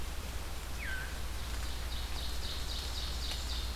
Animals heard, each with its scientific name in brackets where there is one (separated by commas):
Ovenbird (Seiurus aurocapilla), Veery (Catharus fuscescens)